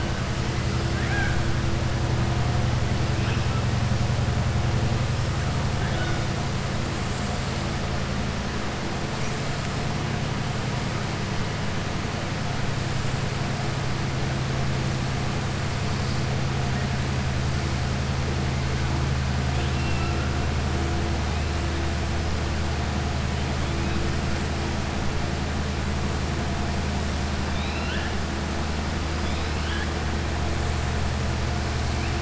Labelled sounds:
0.9	1.4	killer whale, southern resident, 0.76 to 3.3 kHz
5.7	6.2	killer whale, southern resident, 0.65 to 4.5 kHz
19.5	20.2	killer whale, southern resident, 1.3 to 3.7 kHz
27.4	28.1	killer whale, southern resident, 1.4 to 4.1 kHz

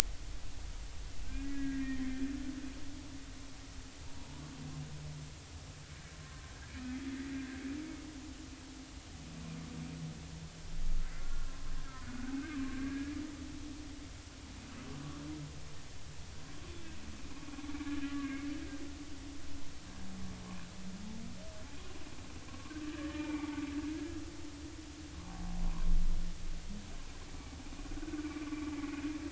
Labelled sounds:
1.2	2.0	humpback whale, 1.4 to 2.0 kHz
4.1	4.4	humpback whale, 0.83 to 1.0 kHz
6.2	6.5	humpback whale, 0.99 to 1.1 kHz
11.1	11.5	humpback whale, 1.3 to 1.5 kHz
12.0	12.4	humpback whale, 1.4 to 1.6 kHz
12.7	13.1	humpback whale, 1.5 to 1.7 kHz
18.1	18.5	humpback whale, 1.6 to 2.3 kHz
22.5	23.5	humpback whale, 0.86 to 2.5 kHz
25.2	25.6	humpback whale, 0.80 to 0.93 kHz

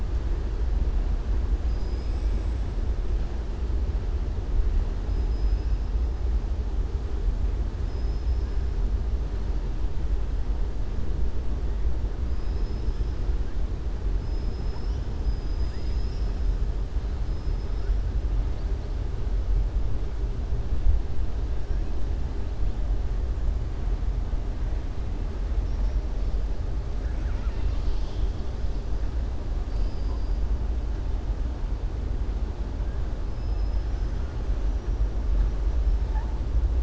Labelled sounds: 5.2	5.7	killer whale, southern resident, 5.0 to 5.9 kHz
7.8	8.5	killer whale, southern resident, 4.7 to 5.7 kHz
14.2	15.0	killer whale, southern resident, 4.6 to 5.9 kHz
33.3	34.2	killer whale, southern resident, 4.6 to 6.1 kHz

